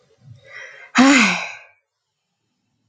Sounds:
Sigh